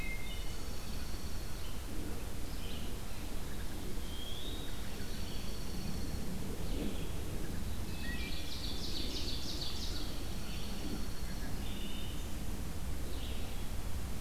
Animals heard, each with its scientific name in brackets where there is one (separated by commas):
Dark-eyed Junco (Junco hyemalis), Wood Thrush (Hylocichla mustelina), Red-eyed Vireo (Vireo olivaceus), Eastern Wood-Pewee (Contopus virens), Ovenbird (Seiurus aurocapilla)